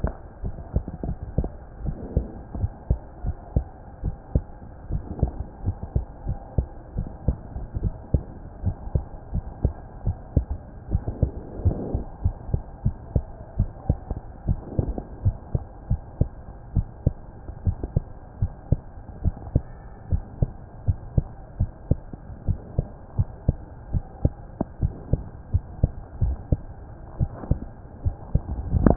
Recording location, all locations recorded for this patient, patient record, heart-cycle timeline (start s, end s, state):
mitral valve (MV)
aortic valve (AV)+pulmonary valve (PV)+tricuspid valve (TV)+mitral valve (MV)
#Age: Child
#Sex: Female
#Height: 126.0 cm
#Weight: 24.4 kg
#Pregnancy status: False
#Murmur: Absent
#Murmur locations: nan
#Most audible location: nan
#Systolic murmur timing: nan
#Systolic murmur shape: nan
#Systolic murmur grading: nan
#Systolic murmur pitch: nan
#Systolic murmur quality: nan
#Diastolic murmur timing: nan
#Diastolic murmur shape: nan
#Diastolic murmur grading: nan
#Diastolic murmur pitch: nan
#Diastolic murmur quality: nan
#Outcome: Normal
#Campaign: 2015 screening campaign
0.00	1.02	unannotated
1.02	1.18	S1
1.18	1.36	systole
1.36	1.52	S2
1.52	1.82	diastole
1.82	1.96	S1
1.96	2.14	systole
2.14	2.28	S2
2.28	2.58	diastole
2.58	2.72	S1
2.72	2.86	systole
2.86	2.98	S2
2.98	3.24	diastole
3.24	3.36	S1
3.36	3.54	systole
3.54	3.68	S2
3.68	4.02	diastole
4.02	4.16	S1
4.16	4.32	systole
4.32	4.46	S2
4.46	4.88	diastole
4.88	5.02	S1
5.02	5.20	systole
5.20	5.34	S2
5.34	5.64	diastole
5.64	5.76	S1
5.76	5.92	systole
5.92	6.06	S2
6.06	6.26	diastole
6.26	6.38	S1
6.38	6.54	systole
6.54	6.66	S2
6.66	6.96	diastole
6.96	7.08	S1
7.08	7.26	systole
7.26	7.40	S2
7.40	7.76	diastole
7.76	7.94	S1
7.94	8.10	systole
8.10	8.26	S2
8.26	8.62	diastole
8.62	8.76	S1
8.76	8.92	systole
8.92	9.06	S2
9.06	9.32	diastole
9.32	9.44	S1
9.44	9.62	systole
9.62	9.76	S2
9.76	10.04	diastole
10.04	10.18	S1
10.18	10.36	systole
10.36	10.50	S2
10.50	10.88	diastole
10.88	11.02	S1
11.02	11.20	systole
11.20	11.34	S2
11.34	11.64	diastole
11.64	11.78	S1
11.78	11.90	systole
11.90	11.98	S2
11.98	12.24	diastole
12.24	12.36	S1
12.36	12.50	systole
12.50	12.58	S2
12.58	12.84	diastole
12.84	12.96	S1
12.96	13.14	systole
13.14	13.26	S2
13.26	13.58	diastole
13.58	13.72	S1
13.72	13.88	systole
13.88	14.02	S2
14.02	14.44	diastole
14.44	14.60	S1
14.60	14.76	systole
14.76	14.90	S2
14.90	15.22	diastole
15.22	15.36	S1
15.36	15.52	systole
15.52	15.62	S2
15.62	15.88	diastole
15.88	16.02	S1
16.02	16.18	systole
16.18	16.32	S2
16.32	16.72	diastole
16.72	16.86	S1
16.86	17.04	systole
17.04	17.20	S2
17.20	17.62	diastole
17.62	17.76	S1
17.76	17.92	systole
17.92	18.04	S2
18.04	18.40	diastole
18.40	18.52	S1
18.52	18.68	systole
18.68	18.84	S2
18.84	19.22	diastole
19.22	19.34	S1
19.34	19.52	systole
19.52	19.68	S2
19.68	20.10	diastole
20.10	20.24	S1
20.24	20.38	systole
20.38	20.52	S2
20.52	20.84	diastole
20.84	20.98	S1
20.98	21.16	systole
21.16	21.30	S2
21.30	21.58	diastole
21.58	21.70	S1
21.70	21.90	systole
21.90	22.04	S2
22.04	22.46	diastole
22.46	22.60	S1
22.60	22.76	systole
22.76	22.86	S2
22.86	23.16	diastole
23.16	23.28	S1
23.28	23.46	systole
23.46	23.60	S2
23.60	23.90	diastole
23.90	24.04	S1
24.04	24.24	systole
24.24	24.38	S2
24.38	24.80	diastole
24.80	24.94	S1
24.94	25.10	systole
25.10	25.24	S2
25.24	25.50	diastole
25.50	25.64	S1
25.64	25.78	systole
25.78	25.94	S2
25.94	28.96	unannotated